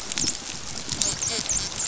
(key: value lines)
label: biophony, dolphin
recorder: SoundTrap 500